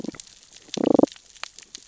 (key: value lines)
label: biophony, damselfish
recorder: SoundTrap 600 or HydroMoth